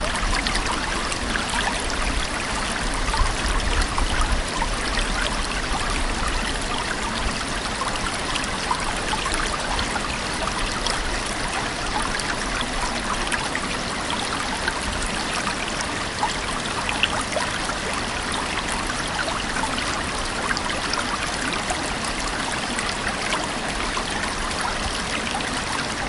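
Water flowing in a creek. 0.0 - 26.1

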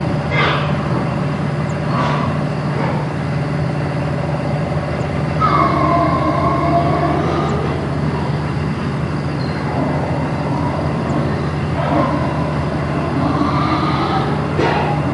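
The metallic sound of a distant machine. 0.1 - 1.1
A metallic sound of a machine in the distance. 1.6 - 2.6
A metallic sound from a machine. 2.6 - 3.3
Animals grunting and crying outside. 5.2 - 8.0
An animal grunts and cries increasingly. 9.6 - 14.4
A metallic machine is operating. 14.3 - 15.1

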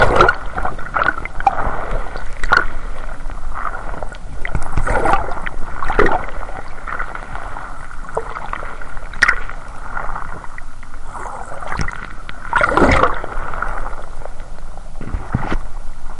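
Heavy water movement recorded underwater. 0.0 - 1.5
Water movement recorded underwater. 0.0 - 16.2
Heavy water movement recorded underwater. 2.2 - 2.9
Heavy water movement recorded underwater. 4.7 - 6.4
Heavy water movement recorded underwater. 9.0 - 9.7
Heavy water movement recorded underwater. 12.5 - 13.1

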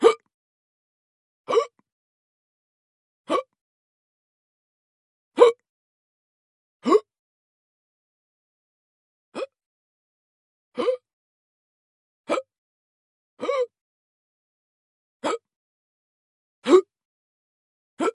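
A male hiccups. 0.0 - 0.2
A male hiccups with an elongated sound. 1.5 - 1.7
A male hiccups. 3.3 - 3.4
A man hiccups loudly. 5.3 - 5.5
A male hiccups with a slight gasp of air. 6.8 - 7.0
A faint male hiccup. 9.3 - 9.5
A male hiccups. 10.7 - 11.0
A male hiccups. 12.3 - 12.5
An elongated male hiccup with audible gasping. 13.4 - 13.7
A male hiccups. 15.2 - 15.4
A man hiccups loudly. 16.6 - 16.9
A male hiccups. 18.0 - 18.1

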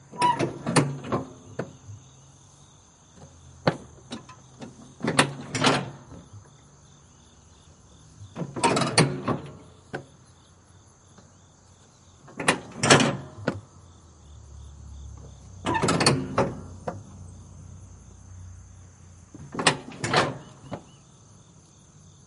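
Banging and creaking metal sounds. 0.0 - 2.1
Crickets chirp in a natural environment. 0.0 - 22.3
Banging and creaking metal sounds. 3.5 - 6.3
Banging and creaking metal sounds. 8.1 - 10.2
Banging and creaking metal sounds. 12.2 - 13.8
Banging and creaking metal sounds. 15.6 - 17.1
Banging and creaking metal sounds. 19.3 - 20.9

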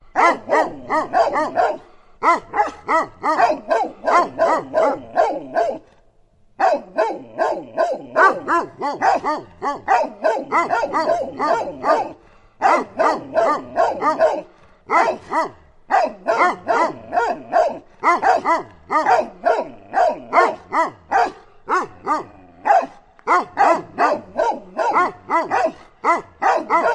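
Two dogs are barking loudly and repeatedly outdoors. 0.0 - 26.9

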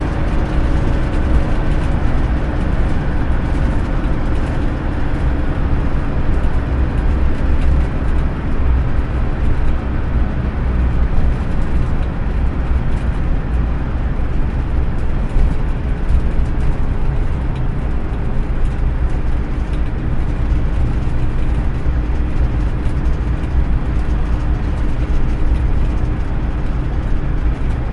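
Continuous loud low-pitched road noise outdoors. 0.0 - 27.9
Rattling sounds, clear, close, and intermittent, outdoors. 0.0 - 27.9

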